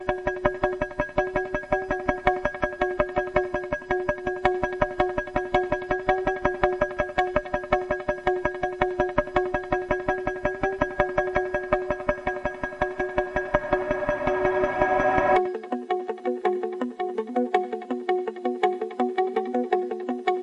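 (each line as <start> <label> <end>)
0.0 A rhythmic, melodic song played with quick, short notes on a string instrument, echoing softly indoors. 20.4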